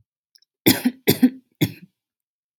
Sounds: Cough